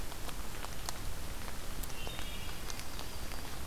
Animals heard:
Wood Thrush (Hylocichla mustelina)
Yellow-rumped Warbler (Setophaga coronata)

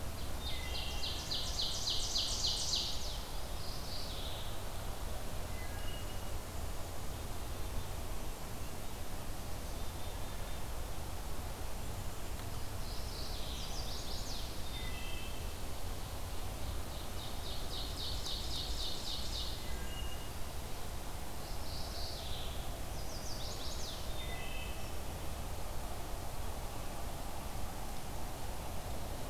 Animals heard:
Mourning Warbler (Geothlypis philadelphia)
Wood Thrush (Hylocichla mustelina)
Chestnut-sided Warbler (Setophaga pensylvanica)
Black-capped Chickadee (Poecile atricapillus)
Ovenbird (Seiurus aurocapilla)

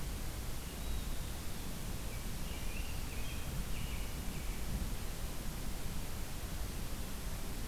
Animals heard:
American Robin (Turdus migratorius)

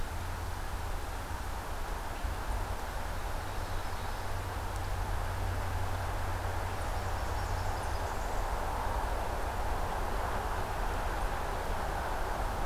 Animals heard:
Blackburnian Warbler (Setophaga fusca)

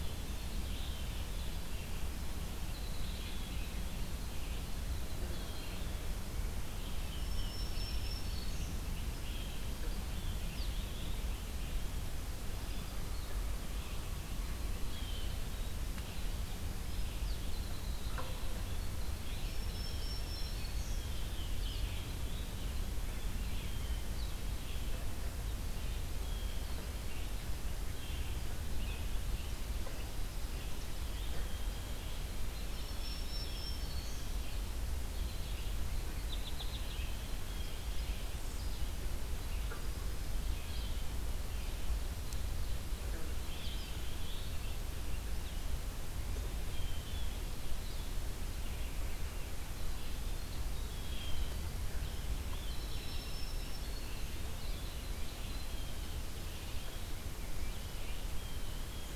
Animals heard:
Scarlet Tanager (Piranga olivacea)
Black-throated Green Warbler (Setophaga virens)
Winter Wren (Troglodytes hiemalis)
American Goldfinch (Spinus tristis)
Blue Jay (Cyanocitta cristata)
Chimney Swift (Chaetura pelagica)
Tufted Titmouse (Baeolophus bicolor)
Red-eyed Vireo (Vireo olivaceus)

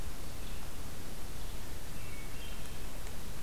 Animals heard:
Hermit Thrush (Catharus guttatus)

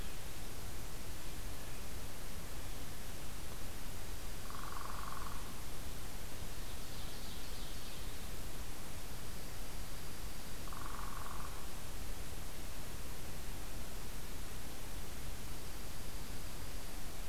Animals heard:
Ovenbird (Seiurus aurocapilla)
Dark-eyed Junco (Junco hyemalis)
Northern Flicker (Colaptes auratus)

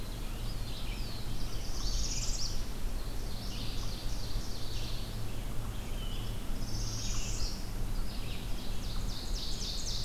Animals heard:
Black-throated Blue Warbler (Setophaga caerulescens)
Red-eyed Vireo (Vireo olivaceus)
Ovenbird (Seiurus aurocapilla)
Northern Parula (Setophaga americana)
unknown mammal

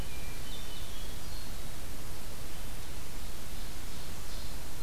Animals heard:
Ovenbird (Seiurus aurocapilla)
Hermit Thrush (Catharus guttatus)

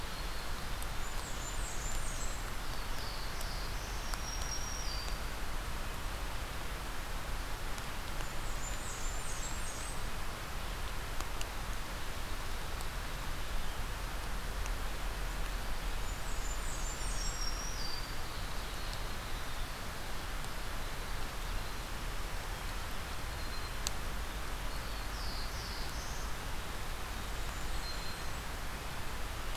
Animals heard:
Black-capped Chickadee (Poecile atricapillus)
Blackburnian Warbler (Setophaga fusca)
Black-throated Blue Warbler (Setophaga caerulescens)
Black-throated Green Warbler (Setophaga virens)

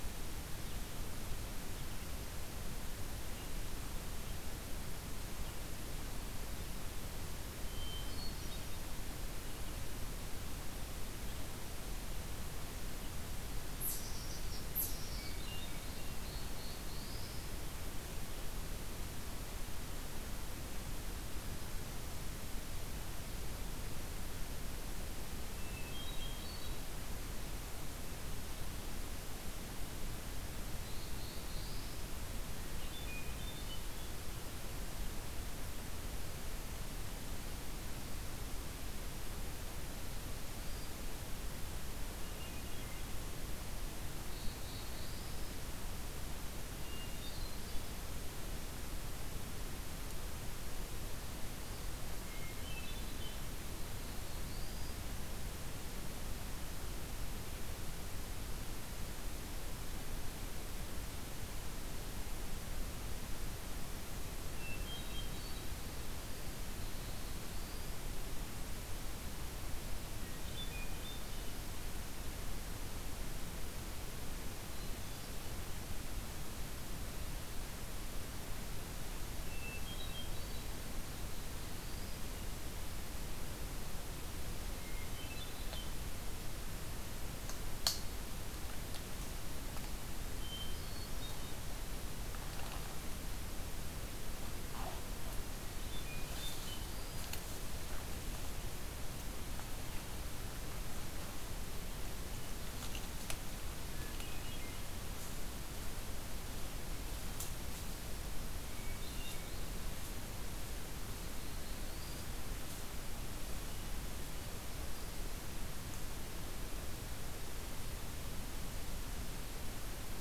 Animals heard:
Black-throated Blue Warbler (Setophaga caerulescens)
Eastern Chipmunk (Tamias striatus)
Hermit Thrush (Catharus guttatus)

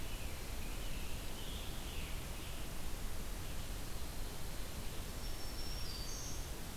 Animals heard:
Black-throated Green Warbler (Setophaga virens)
Scarlet Tanager (Piranga olivacea)

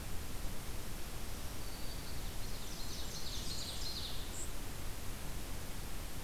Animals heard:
Blackburnian Warbler (Setophaga fusca)
Ovenbird (Seiurus aurocapilla)
Black-throated Green Warbler (Setophaga virens)

